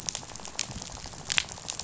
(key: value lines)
label: biophony, rattle
recorder: SoundTrap 500